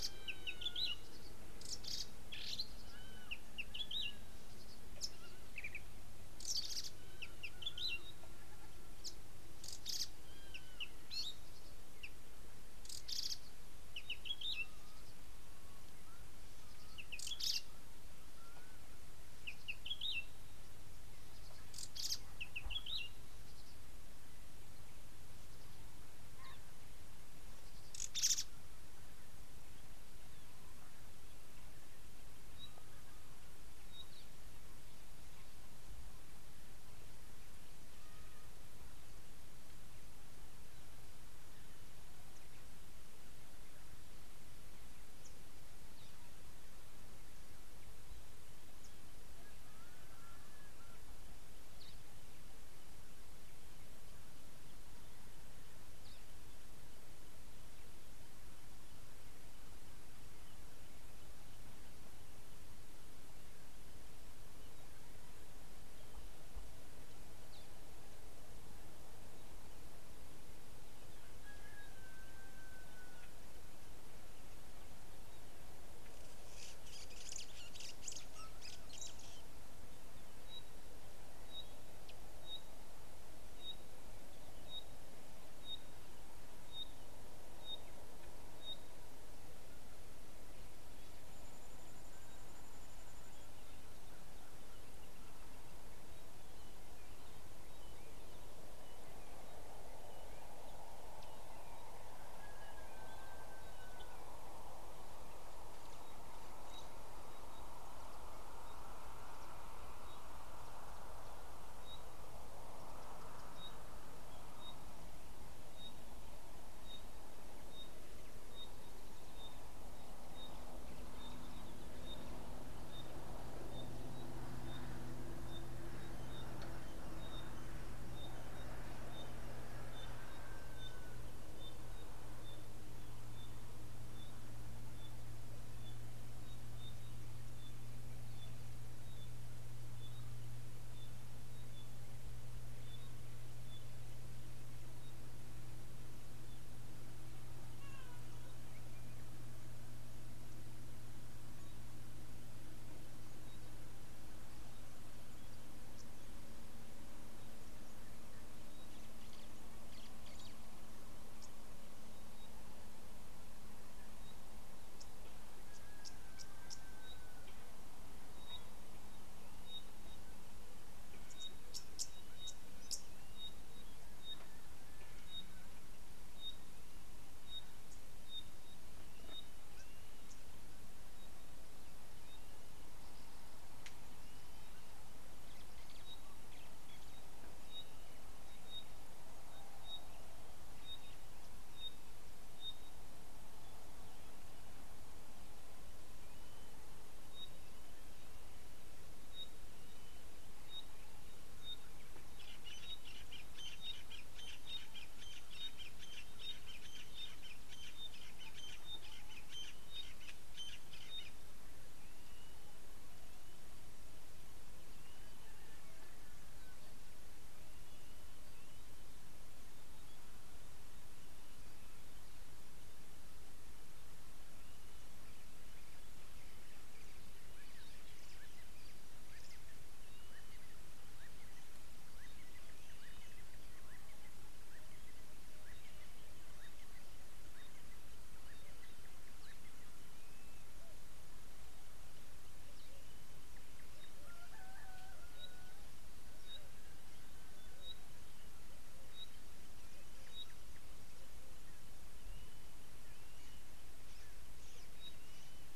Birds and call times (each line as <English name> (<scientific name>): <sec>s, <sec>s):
Red-backed Scrub-Robin (Cercotrichas leucophrys): 1.9s, 6.7s, 14.3s, 22.0s, 28.2s
Pygmy Batis (Batis perkeo): 32.6s, 83.7s, 116.9s, 126.3s, 137.6s, 171.4s, 175.4s, 189.9s, 201.7s, 208.8s, 247.8s
White-browed Sparrow-Weaver (Plocepasser mahali): 77.9s
Red-billed Oxpecker (Buphagus erythrorynchus): 166.0s, 172.0s
Crested Francolin (Ortygornis sephaena): 208.5s